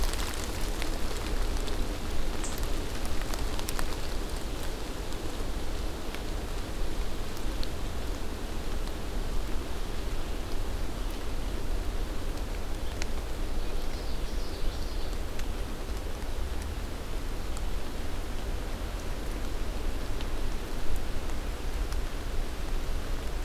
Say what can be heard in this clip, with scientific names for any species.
Geothlypis trichas